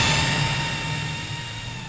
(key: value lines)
label: anthrophony, boat engine
recorder: SoundTrap 500